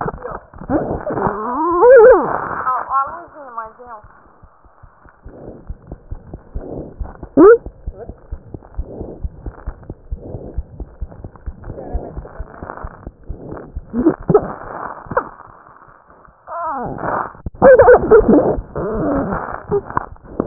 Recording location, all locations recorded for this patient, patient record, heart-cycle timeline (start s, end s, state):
aortic valve (AV)
aortic valve (AV)+mitral valve (MV)
#Age: Child
#Sex: Female
#Height: 67.0 cm
#Weight: 6.88 kg
#Pregnancy status: False
#Murmur: Absent
#Murmur locations: nan
#Most audible location: nan
#Systolic murmur timing: nan
#Systolic murmur shape: nan
#Systolic murmur grading: nan
#Systolic murmur pitch: nan
#Systolic murmur quality: nan
#Diastolic murmur timing: nan
#Diastolic murmur shape: nan
#Diastolic murmur grading: nan
#Diastolic murmur pitch: nan
#Diastolic murmur quality: nan
#Outcome: Abnormal
#Campaign: 2015 screening campaign
0.00	7.84	unannotated
7.84	7.94	S1
7.94	8.06	systole
8.06	8.15	S2
8.15	8.28	diastole
8.28	8.39	S1
8.39	8.51	systole
8.51	8.60	S2
8.60	8.74	diastole
8.74	8.86	S1
8.86	8.96	systole
8.96	9.08	S2
9.08	9.21	diastole
9.21	9.32	S1
9.32	9.44	systole
9.44	9.53	S2
9.53	9.64	diastole
9.64	9.75	S1
9.75	9.87	systole
9.87	9.96	S2
9.96	10.08	diastole
10.08	10.20	S1
10.20	10.30	systole
10.30	10.42	S2
10.42	10.56	diastole
10.56	10.68	S1
10.68	10.77	systole
10.77	10.85	S2
10.85	10.98	diastole
10.98	11.12	S1
11.12	11.20	systole
11.20	11.29	S2
11.29	11.44	diastole
11.44	11.58	S1
11.58	11.66	systole
11.66	11.78	S2
11.78	11.94	diastole
11.94	12.06	S1
12.06	12.14	systole
12.14	12.25	S2
12.25	12.36	diastole
12.36	12.45	S1
12.45	20.46	unannotated